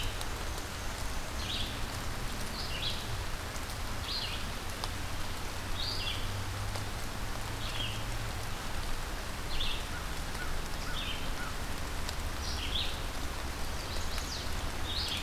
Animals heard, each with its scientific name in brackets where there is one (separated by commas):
Chestnut-sided Warbler (Setophaga pensylvanica), Black-and-white Warbler (Mniotilta varia), American Crow (Corvus brachyrhynchos), Red-eyed Vireo (Vireo olivaceus)